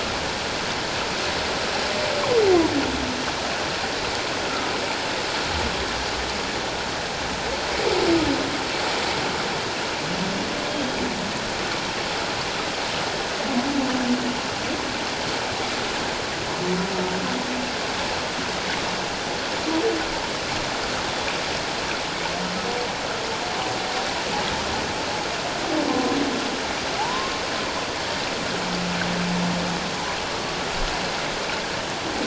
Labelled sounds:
25.9	26.2	humpback whale, 1.0 to 1.1 kHz
27.0	27.4	humpback whale, 0.78 to 1.1 kHz

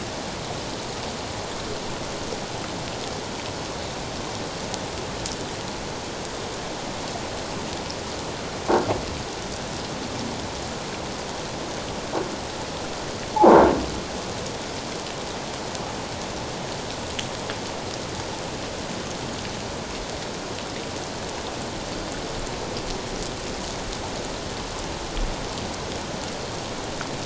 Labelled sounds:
13.3	13.6	croaking sound likely from a nearby submerged object, 0.78 to 1.1 kHz

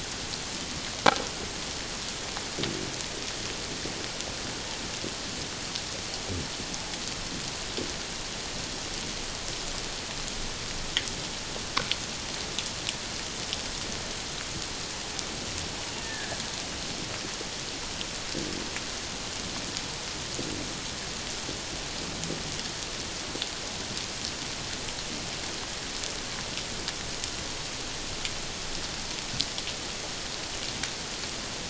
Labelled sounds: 16.0	16.4	killer whale, Bigg's (transient), 1.5 to 1.9 kHz

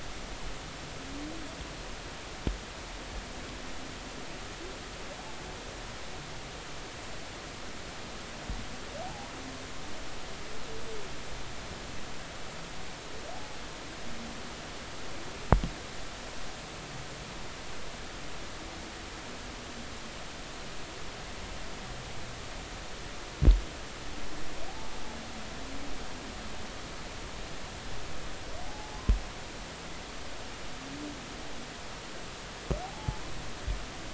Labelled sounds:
9.0	9.3	humpback whale, 0.80 to 0.93 kHz
28.6	29.0	humpback whale, 0.80 to 0.90 kHz
32.8	33.2	humpback whale, 0.80 to 0.93 kHz

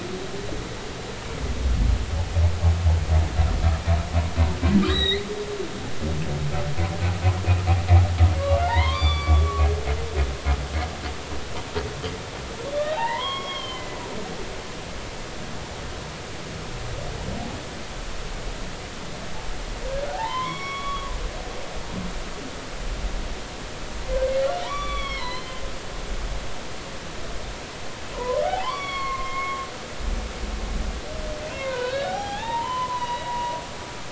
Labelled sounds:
4.9	5.3	humpback whale, 1.8 to 4.2 kHz
8.7	9.5	humpback whale, 0.80 to 4.7 kHz
12.7	14.0	humpback whale, 0.80 to 4.4 kHz
20.1	21.2	humpback whale, 0.80 to 5.6 kHz
24.6	25.5	humpback whale, 0.86 to 5.8 kHz
28.1	29.7	humpback whale, 0.80 to 5.7 kHz
31.6	33.4	humpback whale, 0.80 to 4.0 kHz

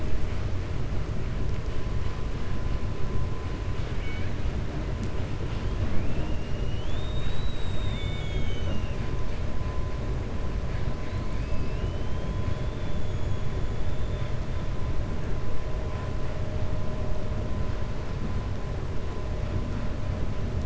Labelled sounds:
3.9	4.3	killer whale, 1.5 to 3.2 kHz

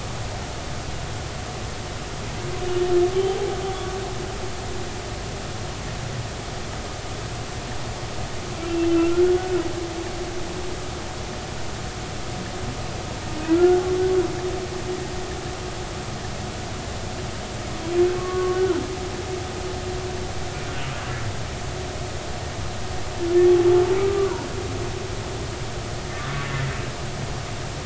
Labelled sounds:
3.1	3.5	humpback whale, 0.80 to 0.86 kHz
8.9	9.6	humpback whale, 1.3 to 1.7 kHz
13.5	13.8	humpback whale, 1.3 to 1.6 kHz
18.2	18.8	humpback whale, 1.1 to 1.5 kHz
24.0	24.5	humpback whale, 0.90 to 1.3 kHz

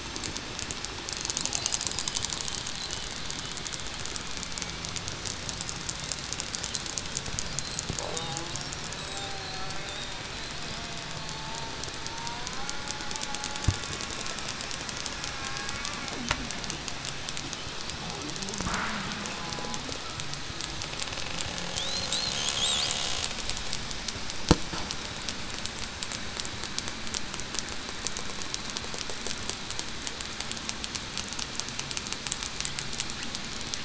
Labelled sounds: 9.1	9.5	killer whale, southern resident, 0.75 to 0.82 kHz
11.1	11.7	killer whale, southern resident, 0.84 to 0.94 kHz
12.0	12.6	killer whale, southern resident, 0.91 to 1.1 kHz

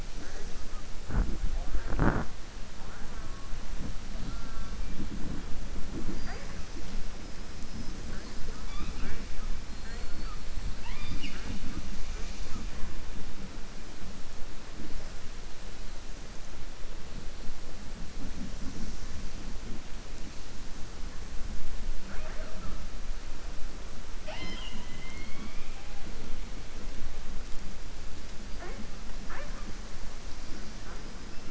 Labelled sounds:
9.7	10.3	killer whale, southern resident, 4.2 to 4.7 kHz

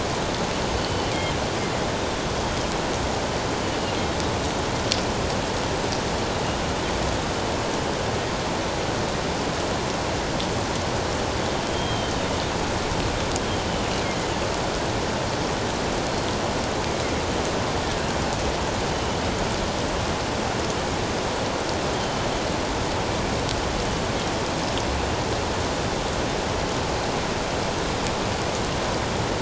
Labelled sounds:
0.8	1.1	killer whale, northern resident, G clan, GG subclan, 3.0 to 3.1 kHz
11.7	12.2	killer whale, northern resident, G clan, GG subclan, 2.9 to 3.3 kHz
18.9	19.2	killer whale, northern resident, G clan, GG subclan, 2.9 to 3.0 kHz

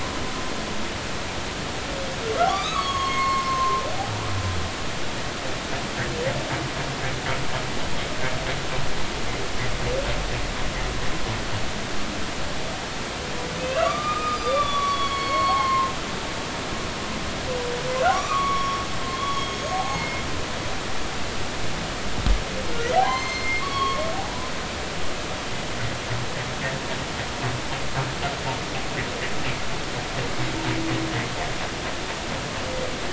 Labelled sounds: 2.5	3.8	humpback whale, 0.99 to 6.7 kHz
13.6	15.9	humpback whale, 0.90 to 5.9 kHz
18.1	20.2	humpback whale, 0.80 to 6.6 kHz
23.0	24.0	humpback whale, 1.0 to 7.4 kHz

